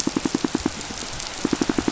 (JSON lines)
{"label": "biophony, pulse", "recorder": "SoundTrap 500"}